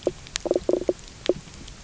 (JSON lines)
{"label": "biophony", "recorder": "SoundTrap 300"}